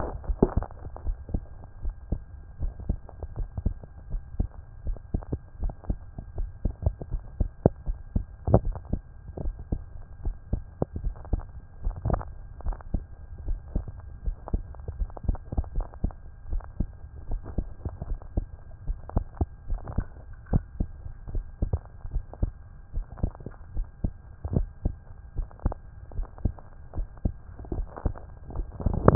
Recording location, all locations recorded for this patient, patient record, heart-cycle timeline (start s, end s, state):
tricuspid valve (TV)
pulmonary valve (PV)+tricuspid valve (TV)+mitral valve (MV)
#Age: Adolescent
#Sex: Male
#Height: 173.0 cm
#Weight: 46.8 kg
#Pregnancy status: False
#Murmur: Present
#Murmur locations: mitral valve (MV)
#Most audible location: mitral valve (MV)
#Systolic murmur timing: Early-systolic
#Systolic murmur shape: Plateau
#Systolic murmur grading: I/VI
#Systolic murmur pitch: Low
#Systolic murmur quality: Harsh
#Diastolic murmur timing: nan
#Diastolic murmur shape: nan
#Diastolic murmur grading: nan
#Diastolic murmur pitch: nan
#Diastolic murmur quality: nan
#Outcome: Abnormal
#Campaign: 2014 screening campaign
0.00	21.92	unannotated
21.92	22.12	diastole
22.12	22.24	S1
22.24	22.40	systole
22.40	22.52	S2
22.52	22.94	diastole
22.94	23.06	S1
23.06	23.22	systole
23.22	23.32	S2
23.32	23.76	diastole
23.76	23.86	S1
23.86	24.02	systole
24.02	24.12	S2
24.12	24.52	diastole
24.52	24.68	S1
24.68	24.84	systole
24.84	24.94	S2
24.94	25.36	diastole
25.36	25.48	S1
25.48	25.64	systole
25.64	25.74	S2
25.74	26.16	diastole
26.16	26.28	S1
26.28	26.44	systole
26.44	26.54	S2
26.54	26.96	diastole
26.96	27.08	S1
27.08	27.24	systole
27.24	27.34	S2
27.34	27.74	diastole
27.74	27.86	S1
27.86	28.04	systole
28.04	28.14	S2
28.14	28.56	diastole
28.56	29.15	unannotated